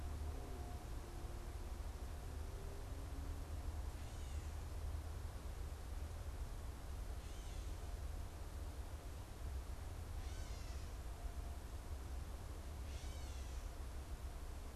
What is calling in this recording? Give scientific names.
Dumetella carolinensis